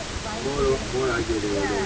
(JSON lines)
{"label": "ambient", "recorder": "HydroMoth"}